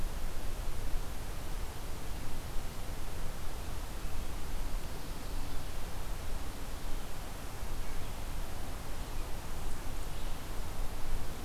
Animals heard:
forest ambience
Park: Marsh-Billings-Rockefeller National Historical Park